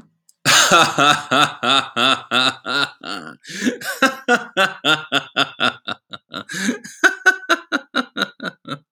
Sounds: Laughter